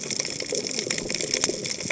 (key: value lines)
label: biophony, cascading saw
recorder: HydroMoth